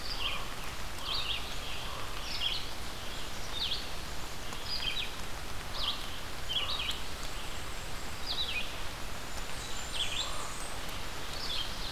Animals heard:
Blackburnian Warbler (Setophaga fusca), Common Raven (Corvus corax), Red-eyed Vireo (Vireo olivaceus), Ovenbird (Seiurus aurocapilla), Black-and-white Warbler (Mniotilta varia)

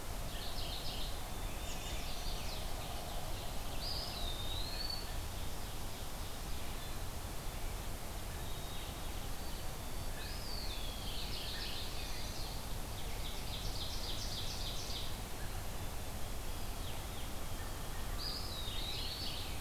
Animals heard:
Ovenbird (Seiurus aurocapilla), Chestnut-sided Warbler (Setophaga pensylvanica), Mourning Warbler (Geothlypis philadelphia), Eastern Wood-Pewee (Contopus virens), White-throated Sparrow (Zonotrichia albicollis)

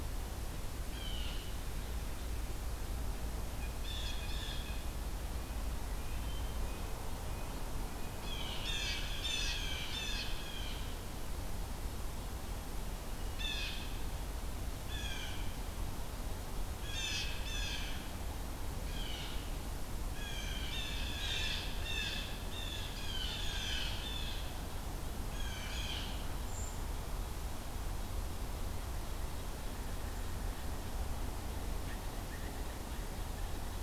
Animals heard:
Hermit Thrush (Catharus guttatus), Blue Jay (Cyanocitta cristata), Brown Creeper (Certhia americana)

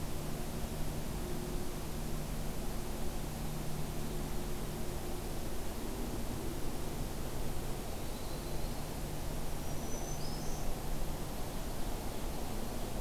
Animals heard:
Black-throated Green Warbler (Setophaga virens), Ovenbird (Seiurus aurocapilla), Yellow-rumped Warbler (Setophaga coronata)

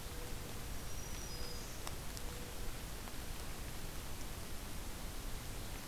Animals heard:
Black-throated Green Warbler (Setophaga virens), Mourning Dove (Zenaida macroura)

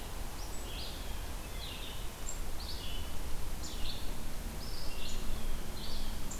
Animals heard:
Red-eyed Vireo (Vireo olivaceus), Blue Jay (Cyanocitta cristata)

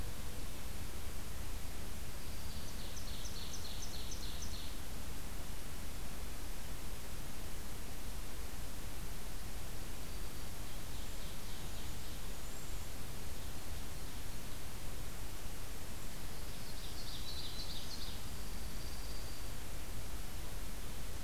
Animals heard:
Black-throated Green Warbler (Setophaga virens), Cedar Waxwing (Bombycilla cedrorum), Dark-eyed Junco (Junco hyemalis), Ovenbird (Seiurus aurocapilla)

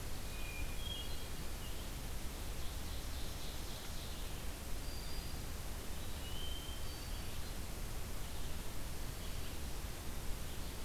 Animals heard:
Hermit Thrush (Catharus guttatus), Black-throated Green Warbler (Setophaga virens), Ovenbird (Seiurus aurocapilla)

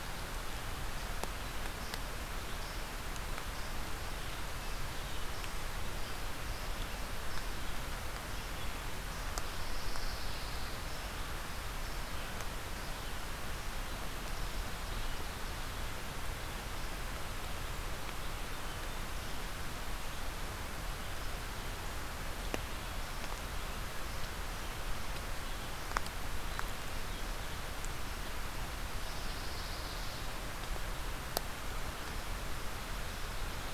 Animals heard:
Pine Warbler (Setophaga pinus)

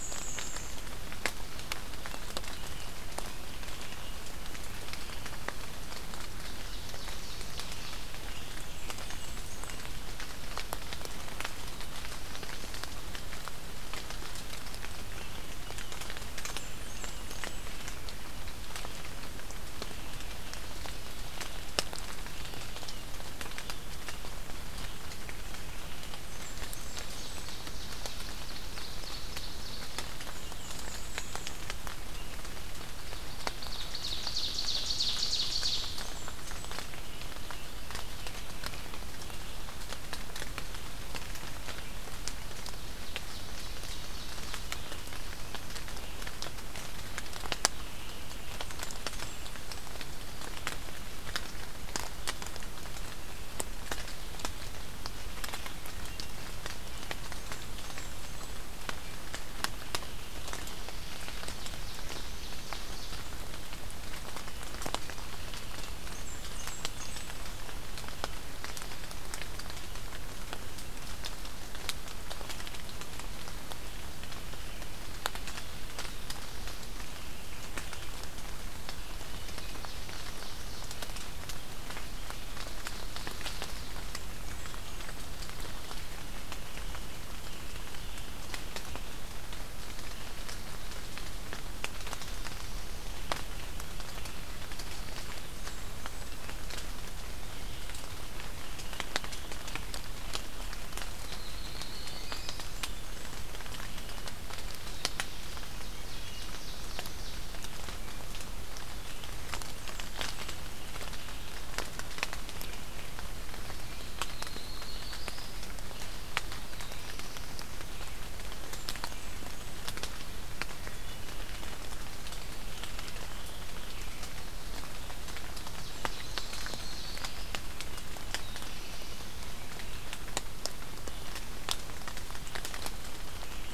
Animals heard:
Hermit Thrush (Catharus guttatus), Black-and-white Warbler (Mniotilta varia), Ovenbird (Seiurus aurocapilla), Black-throated Blue Warbler (Setophaga caerulescens), Blackburnian Warbler (Setophaga fusca), Yellow-rumped Warbler (Setophaga coronata)

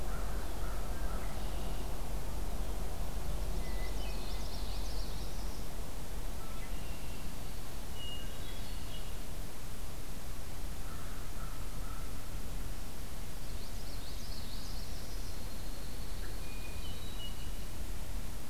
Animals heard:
Common Yellowthroat (Geothlypis trichas), American Crow (Corvus brachyrhynchos), Red-winged Blackbird (Agelaius phoeniceus), Hermit Thrush (Catharus guttatus), Northern Parula (Setophaga americana)

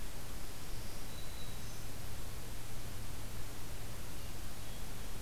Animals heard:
Hermit Thrush (Catharus guttatus), Black-throated Green Warbler (Setophaga virens)

